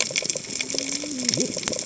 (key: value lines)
label: biophony, cascading saw
recorder: HydroMoth